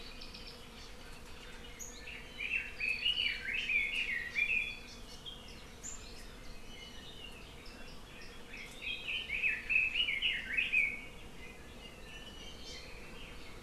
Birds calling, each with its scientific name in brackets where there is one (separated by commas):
Red-billed Leiothrix (Leiothrix lutea), Apapane (Himatione sanguinea), Hawaii Amakihi (Chlorodrepanis virens)